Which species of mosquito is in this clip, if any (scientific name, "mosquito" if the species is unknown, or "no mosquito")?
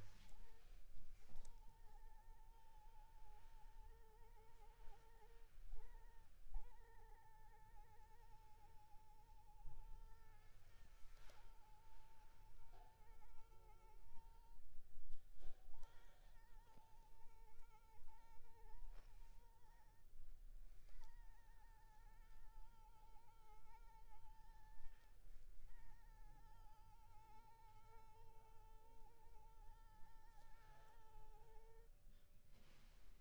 Anopheles arabiensis